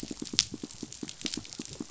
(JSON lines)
{"label": "biophony, pulse", "recorder": "SoundTrap 500"}